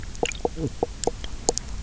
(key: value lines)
label: biophony, knock croak
recorder: SoundTrap 300